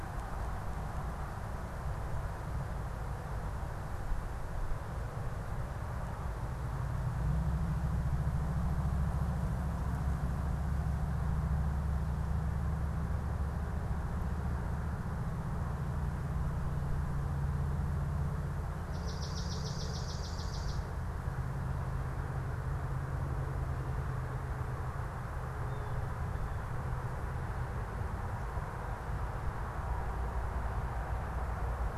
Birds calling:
Swamp Sparrow (Melospiza georgiana)

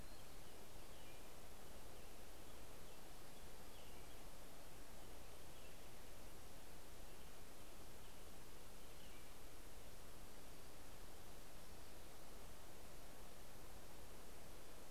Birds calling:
American Robin (Turdus migratorius)

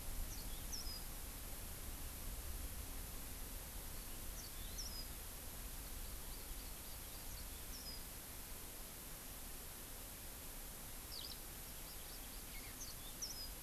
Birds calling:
Hawaii Amakihi (Chlorodrepanis virens)
Eurasian Skylark (Alauda arvensis)
House Finch (Haemorhous mexicanus)
Yellow-fronted Canary (Crithagra mozambica)

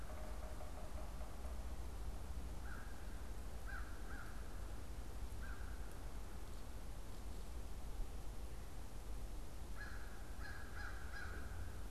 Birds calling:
American Crow (Corvus brachyrhynchos)
Yellow-bellied Sapsucker (Sphyrapicus varius)

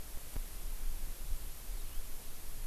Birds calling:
House Finch (Haemorhous mexicanus)

